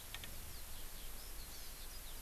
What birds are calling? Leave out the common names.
Alauda arvensis, Chlorodrepanis virens